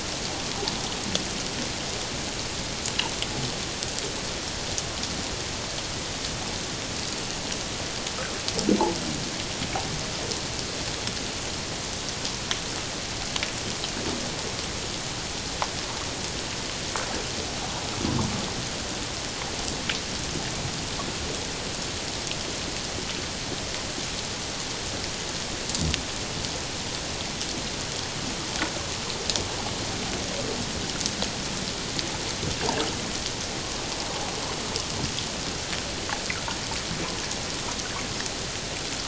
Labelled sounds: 33.6	33.9	water noise, 1.0 to 1.2 kHz

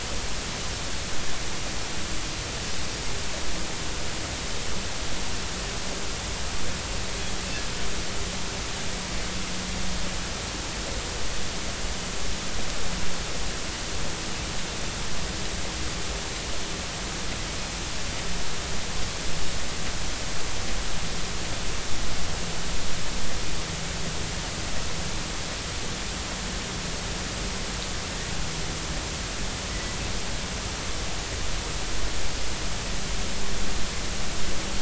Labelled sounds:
29.7	30.0	Pacific white-sided dolphin, 1.9 to 2.0 kHz

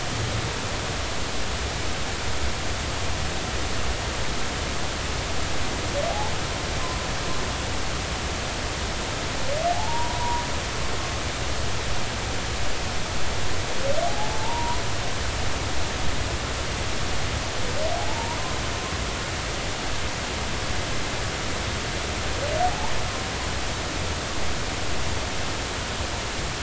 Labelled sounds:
9.7	10.4	humpback whale, 0.80 to 1.0 kHz
14.0	14.8	humpback whale, 0.80 to 1.1 kHz
22.6	22.9	humpback whale, 0.80 to 1.1 kHz

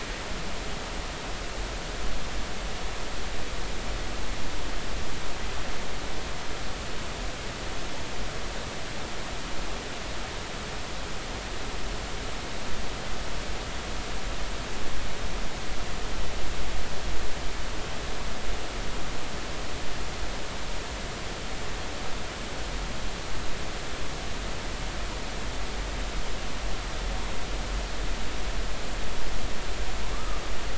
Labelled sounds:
30.1	30.4	humpback whale, 1.1 to 1.3 kHz

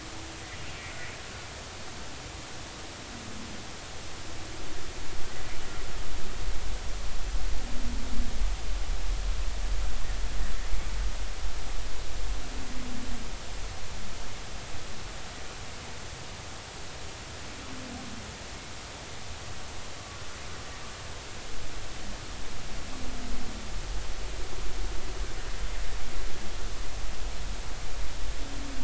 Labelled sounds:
0.8	1.0	humpback whale, 2.0 to 2.4 kHz

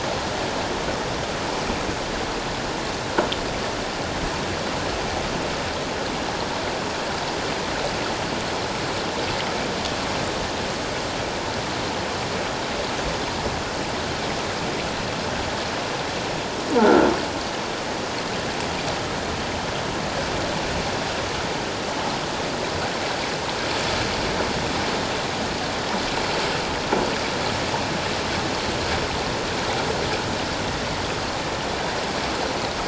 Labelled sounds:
16.8	17.1	croaking sound likely from a nearby submerged object, 1.3 to 1.5 kHz

